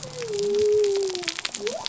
{"label": "biophony", "recorder": "SoundTrap 300"}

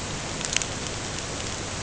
{"label": "ambient", "recorder": "HydroMoth"}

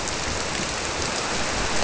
{"label": "biophony", "recorder": "SoundTrap 300"}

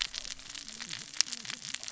{"label": "biophony, cascading saw", "recorder": "SoundTrap 600 or HydroMoth"}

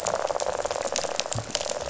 {"label": "biophony, rattle", "recorder": "SoundTrap 500"}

